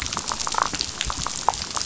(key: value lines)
label: biophony, damselfish
recorder: SoundTrap 500